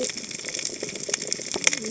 {"label": "biophony, cascading saw", "recorder": "HydroMoth"}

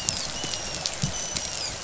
{"label": "biophony, dolphin", "recorder": "SoundTrap 500"}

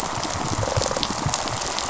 {"label": "biophony, rattle response", "recorder": "SoundTrap 500"}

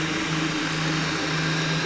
{"label": "anthrophony, boat engine", "recorder": "SoundTrap 500"}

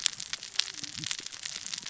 {"label": "biophony, cascading saw", "recorder": "SoundTrap 600 or HydroMoth"}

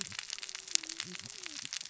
{"label": "biophony, cascading saw", "recorder": "SoundTrap 600 or HydroMoth"}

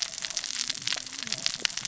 {"label": "biophony, cascading saw", "recorder": "SoundTrap 600 or HydroMoth"}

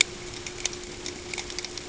{"label": "ambient", "recorder": "HydroMoth"}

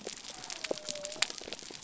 {"label": "biophony", "recorder": "SoundTrap 300"}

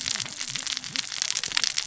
{"label": "biophony, cascading saw", "recorder": "SoundTrap 600 or HydroMoth"}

